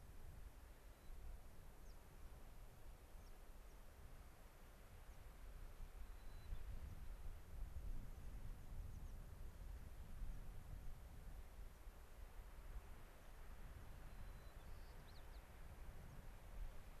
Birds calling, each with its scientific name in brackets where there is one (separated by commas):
American Pipit (Anthus rubescens), White-crowned Sparrow (Zonotrichia leucophrys)